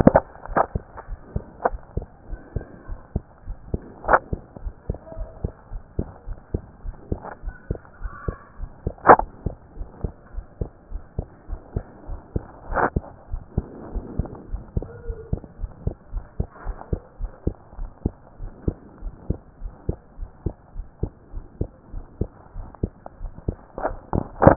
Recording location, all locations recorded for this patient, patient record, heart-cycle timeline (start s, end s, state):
pulmonary valve (PV)
aortic valve (AV)+pulmonary valve (PV)+tricuspid valve (TV)+mitral valve (MV)
#Age: Child
#Sex: Female
#Height: 129.0 cm
#Weight: 27.7 kg
#Pregnancy status: False
#Murmur: Absent
#Murmur locations: nan
#Most audible location: nan
#Systolic murmur timing: nan
#Systolic murmur shape: nan
#Systolic murmur grading: nan
#Systolic murmur pitch: nan
#Systolic murmur quality: nan
#Diastolic murmur timing: nan
#Diastolic murmur shape: nan
#Diastolic murmur grading: nan
#Diastolic murmur pitch: nan
#Diastolic murmur quality: nan
#Outcome: Abnormal
#Campaign: 2014 screening campaign
0.00	0.41	unannotated
0.41	0.50	diastole
0.50	0.64	S1
0.64	0.72	systole
0.72	0.86	S2
0.86	1.10	diastole
1.10	1.20	S1
1.20	1.32	systole
1.32	1.46	S2
1.46	1.66	diastole
1.66	1.80	S1
1.80	1.94	systole
1.94	2.08	S2
2.08	2.30	diastole
2.30	2.40	S1
2.40	2.52	systole
2.52	2.66	S2
2.66	2.88	diastole
2.88	3.00	S1
3.00	3.10	systole
3.10	3.24	S2
3.24	3.46	diastole
3.46	3.58	S1
3.58	3.70	systole
3.70	3.84	S2
3.84	4.06	diastole
4.06	4.20	S1
4.20	4.30	systole
4.30	4.40	S2
4.40	4.62	diastole
4.62	4.74	S1
4.74	4.86	systole
4.86	5.00	S2
5.00	5.18	diastole
5.18	5.30	S1
5.30	5.40	systole
5.40	5.52	S2
5.52	5.72	diastole
5.72	5.82	S1
5.82	5.96	systole
5.96	6.10	S2
6.10	6.28	diastole
6.28	6.38	S1
6.38	6.50	systole
6.50	6.62	S2
6.62	6.84	diastole
6.84	6.96	S1
6.96	7.08	systole
7.08	7.22	S2
7.22	7.44	diastole
7.44	7.54	S1
7.54	7.66	systole
7.66	7.78	S2
7.78	8.00	diastole
8.00	8.12	S1
8.12	8.24	systole
8.24	8.38	S2
8.38	8.60	diastole
8.60	8.70	S1
8.70	8.82	systole
8.82	8.94	S2
8.94	9.15	diastole
9.15	9.26	S1
9.26	9.42	systole
9.42	9.54	S2
9.54	9.76	diastole
9.76	9.88	S1
9.88	10.00	systole
10.00	10.12	S2
10.12	10.34	diastole
10.34	10.46	S1
10.46	10.60	systole
10.60	10.70	S2
10.70	10.92	diastole
10.92	11.02	S1
11.02	11.14	systole
11.14	11.26	S2
11.26	11.48	diastole
11.48	11.60	S1
11.60	11.72	systole
11.72	11.84	S2
11.84	12.08	diastole
12.08	12.20	S1
12.20	12.32	systole
12.32	12.46	S2
12.46	12.70	diastole
12.70	12.83	S1
12.83	12.92	systole
12.92	13.06	S2
13.06	13.30	diastole
13.30	13.44	S1
13.44	13.56	systole
13.56	13.70	S2
13.70	13.90	diastole
13.90	14.04	S1
14.04	14.16	systole
14.16	14.30	S2
14.30	14.50	diastole
14.50	14.66	S1
14.66	14.78	systole
14.78	14.88	S2
14.88	15.06	diastole
15.06	15.18	S1
15.18	15.30	systole
15.30	15.40	S2
15.40	15.60	diastole
15.60	15.72	S1
15.72	15.84	systole
15.84	15.96	S2
15.96	16.14	diastole
16.14	16.26	S1
16.26	16.36	systole
16.36	16.50	S2
16.50	16.66	diastole
16.66	16.78	S1
16.78	16.88	systole
16.88	17.00	S2
17.00	17.20	diastole
17.20	17.32	S1
17.32	17.46	systole
17.46	17.56	S2
17.56	17.78	diastole
17.78	17.90	S1
17.90	18.02	systole
18.02	18.16	S2
18.16	18.40	diastole
18.40	18.52	S1
18.52	18.64	systole
18.64	18.78	S2
18.78	19.00	diastole
19.00	19.14	S1
19.14	19.28	systole
19.28	19.40	S2
19.40	19.62	diastole
19.62	19.74	S1
19.74	19.84	systole
19.84	19.98	S2
19.98	20.20	diastole
20.20	20.30	S1
20.30	20.42	systole
20.42	20.56	S2
20.56	20.76	diastole
20.76	20.88	S1
20.88	21.00	systole
21.00	21.12	S2
21.12	21.34	diastole
21.34	21.44	S1
21.44	21.56	systole
21.56	21.68	S2
21.68	21.92	diastole
21.92	22.06	S1
22.06	22.20	systole
22.20	22.32	S2
22.32	22.56	diastole
22.56	22.68	S1
22.68	22.80	systole
22.80	22.94	S2
22.94	23.20	diastole
23.20	23.32	S1
23.32	23.44	systole
23.44	23.58	S2
23.58	24.56	unannotated